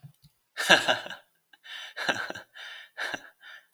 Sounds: Laughter